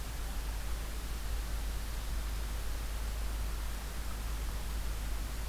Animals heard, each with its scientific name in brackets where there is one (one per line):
Black-throated Green Warbler (Setophaga virens)